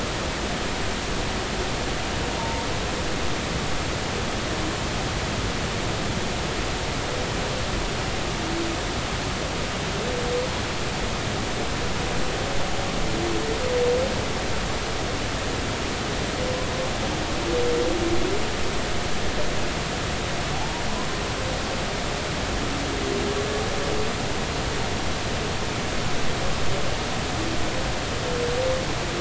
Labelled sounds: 2.4	2.6	humpback whale, 0.86 to 1.1 kHz

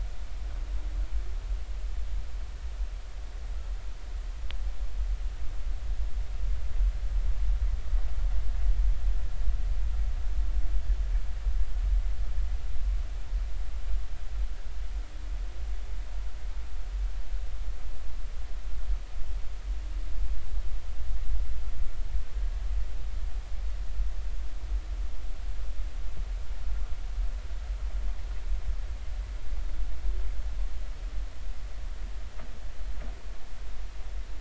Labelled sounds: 22.3	22.6	humpback whale, 1.6 to 1.7 kHz

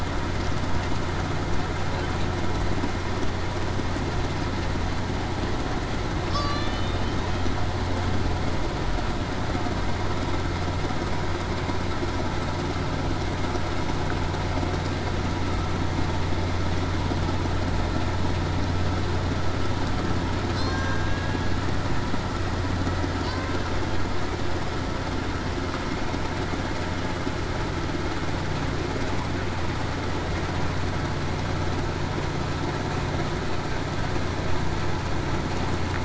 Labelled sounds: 6.3	6.7	killer whale, Bigg's (transient), 1.1 to 1.2 kHz
20.7	21.3	killer whale, Bigg's (transient), 1.6 to 1.7 kHz

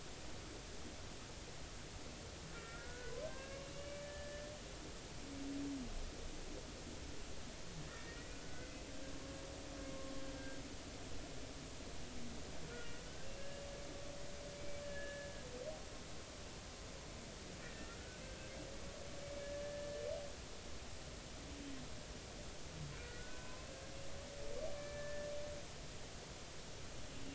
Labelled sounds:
2.5	4.5	humpback whale, 0.90 to 2.9 kHz
7.9	8.8	humpback whale, 1.4 to 2.4 kHz
12.7	13.6	humpback whale, 1.6 to 2.0 kHz
14.6	15.3	humpback whale, 1.6 to 2.3 kHz
17.6	18.5	humpback whale, 1.5 to 2.0 kHz
19.6	20.1	humpback whale, 1.7 to 1.8 kHz
22.9	23.7	humpback whale, 0.96 to 2.6 kHz
24.8	25.3	humpback whale, 1.7 to 2.4 kHz

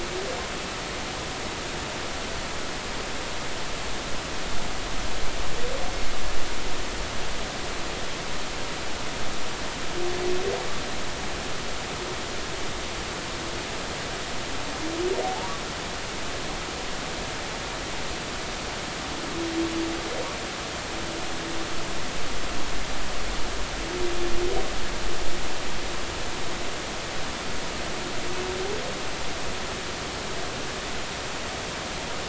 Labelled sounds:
15.2	15.5	humpback whale, 0.80 to 0.99 kHz

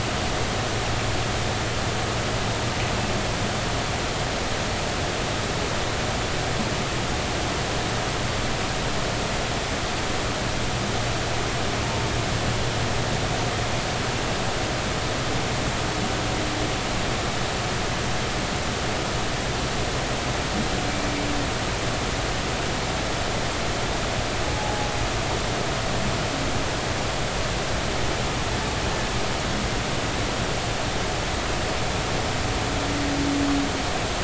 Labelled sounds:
24.5	24.9	humpback whale, 0.80 to 0.90 kHz

